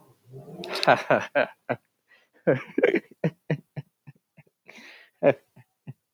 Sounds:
Laughter